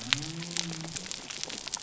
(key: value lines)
label: biophony
recorder: SoundTrap 300